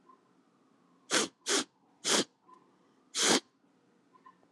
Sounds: Sniff